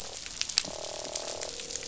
{"label": "biophony, croak", "recorder": "SoundTrap 500"}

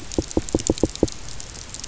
{"label": "biophony, knock", "recorder": "SoundTrap 300"}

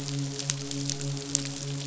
{"label": "biophony, midshipman", "recorder": "SoundTrap 500"}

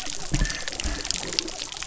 {"label": "biophony", "recorder": "SoundTrap 300"}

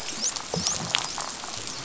{"label": "biophony, dolphin", "recorder": "SoundTrap 500"}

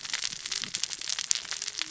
{"label": "biophony, cascading saw", "recorder": "SoundTrap 600 or HydroMoth"}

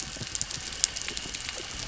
{"label": "anthrophony, boat engine", "recorder": "SoundTrap 300"}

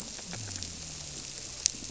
{"label": "biophony", "recorder": "SoundTrap 300"}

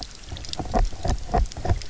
{"label": "biophony, knock croak", "recorder": "SoundTrap 300"}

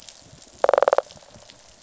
{"label": "biophony, rattle response", "recorder": "SoundTrap 500"}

